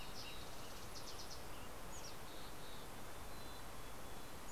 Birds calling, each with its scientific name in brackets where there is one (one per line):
Mountain Chickadee (Poecile gambeli)
Fox Sparrow (Passerella iliaca)
Western Tanager (Piranga ludoviciana)